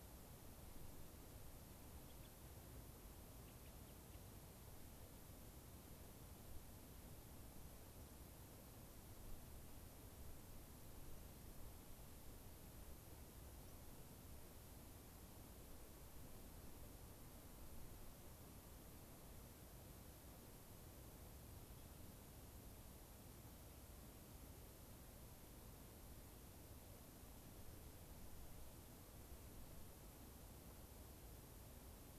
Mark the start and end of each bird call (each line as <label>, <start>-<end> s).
Gray-crowned Rosy-Finch (Leucosticte tephrocotis), 1.9-2.3 s
Gray-crowned Rosy-Finch (Leucosticte tephrocotis), 3.3-4.2 s
unidentified bird, 13.5-13.7 s